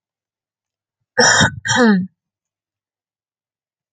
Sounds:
Cough